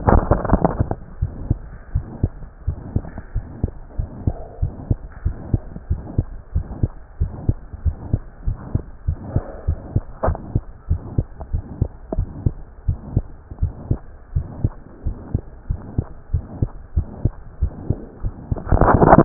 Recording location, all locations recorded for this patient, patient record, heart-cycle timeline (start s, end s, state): tricuspid valve (TV)
aortic valve (AV)+pulmonary valve (PV)+tricuspid valve (TV)+mitral valve (MV)
#Age: Child
#Sex: Male
#Height: 126.0 cm
#Weight: 24.7 kg
#Pregnancy status: False
#Murmur: Present
#Murmur locations: mitral valve (MV)+pulmonary valve (PV)+tricuspid valve (TV)
#Most audible location: mitral valve (MV)
#Systolic murmur timing: Holosystolic
#Systolic murmur shape: Plateau
#Systolic murmur grading: II/VI
#Systolic murmur pitch: Medium
#Systolic murmur quality: Blowing
#Diastolic murmur timing: nan
#Diastolic murmur shape: nan
#Diastolic murmur grading: nan
#Diastolic murmur pitch: nan
#Diastolic murmur quality: nan
#Outcome: Abnormal
#Campaign: 2015 screening campaign
0.00	1.62	unannotated
1.62	1.92	diastole
1.92	2.06	S1
2.06	2.20	systole
2.20	2.34	S2
2.34	2.64	diastole
2.64	2.76	S1
2.76	2.92	systole
2.92	3.06	S2
3.06	3.34	diastole
3.34	3.44	S1
3.44	3.60	systole
3.60	3.70	S2
3.70	3.96	diastole
3.96	4.10	S1
4.10	4.24	systole
4.24	4.36	S2
4.36	4.60	diastole
4.60	4.74	S1
4.74	4.88	systole
4.88	4.98	S2
4.98	5.24	diastole
5.24	5.36	S1
5.36	5.50	systole
5.50	5.62	S2
5.62	5.88	diastole
5.88	6.02	S1
6.02	6.16	systole
6.16	6.26	S2
6.26	6.54	diastole
6.54	6.64	S1
6.64	6.80	systole
6.80	6.92	S2
6.92	7.18	diastole
7.18	7.32	S1
7.32	7.46	systole
7.46	7.56	S2
7.56	7.84	diastole
7.84	7.96	S1
7.96	8.12	systole
8.12	8.22	S2
8.22	8.46	diastole
8.46	8.58	S1
8.58	8.72	systole
8.72	8.82	S2
8.82	9.06	diastole
9.06	9.20	S1
9.20	9.34	systole
9.34	9.44	S2
9.44	9.66	diastole
9.66	9.80	S1
9.80	9.94	systole
9.94	10.04	S2
10.04	10.26	diastole
10.26	10.40	S1
10.40	10.54	systole
10.54	10.64	S2
10.64	10.90	diastole
10.90	11.02	S1
11.02	11.16	systole
11.16	11.26	S2
11.26	11.52	diastole
11.52	11.66	S1
11.66	11.80	systole
11.80	11.92	S2
11.92	12.16	diastole
12.16	12.30	S1
12.30	12.44	systole
12.44	12.58	S2
12.58	12.86	diastole
12.86	12.98	S1
12.98	13.14	systole
13.14	13.26	S2
13.26	13.60	diastole
13.60	13.74	S1
13.74	13.86	systole
13.86	14.00	S2
14.00	14.34	diastole
14.34	14.48	S1
14.48	14.60	systole
14.60	14.74	S2
14.74	15.04	diastole
15.04	15.16	S1
15.16	15.30	systole
15.30	15.42	S2
15.42	15.66	diastole
15.66	15.78	S1
15.78	15.94	systole
15.94	16.08	S2
16.08	16.32	diastole
16.32	16.42	S1
16.42	16.58	systole
16.58	16.70	S2
16.70	16.96	diastole
16.96	17.08	S1
17.08	17.20	systole
17.20	17.34	S2
17.34	17.60	diastole
17.60	17.74	S1
17.74	17.88	systole
17.88	18.00	S2
18.00	18.24	diastole
18.24	19.25	unannotated